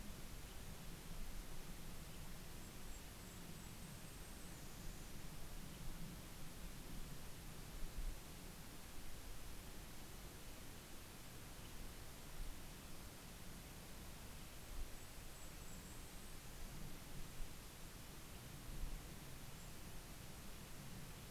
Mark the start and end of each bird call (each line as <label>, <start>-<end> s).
Western Tanager (Piranga ludoviciana), 1.6-2.2 s
Golden-crowned Kinglet (Regulus satrapa), 2.3-6.0 s
Western Tanager (Piranga ludoviciana), 5.3-6.8 s
Red-breasted Nuthatch (Sitta canadensis), 9.5-12.5 s
Golden-crowned Kinglet (Regulus satrapa), 14.2-17.2 s
Western Tanager (Piranga ludoviciana), 17.6-18.8 s
Golden-crowned Kinglet (Regulus satrapa), 18.7-20.1 s